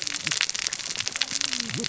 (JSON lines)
{"label": "biophony, cascading saw", "recorder": "SoundTrap 600 or HydroMoth"}